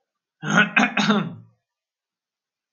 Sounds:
Throat clearing